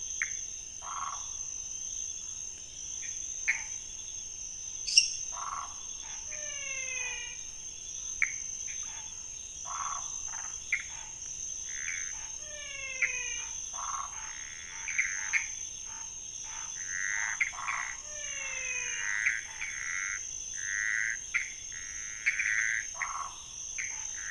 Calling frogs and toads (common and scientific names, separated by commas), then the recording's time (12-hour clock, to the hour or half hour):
Pithecopus azureus, waxy monkey tree frog (Phyllomedusa sauvagii), lesser tree frog (Dendropsophus minutus), menwig frog (Physalaemus albonotatus), Scinax fuscovarius
11:30pm